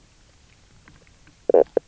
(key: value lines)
label: biophony, knock croak
recorder: SoundTrap 300